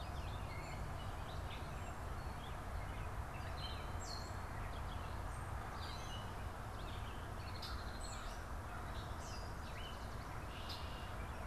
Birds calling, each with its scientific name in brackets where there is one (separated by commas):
Red-winged Blackbird (Agelaius phoeniceus), Gray Catbird (Dumetella carolinensis), American Crow (Corvus brachyrhynchos)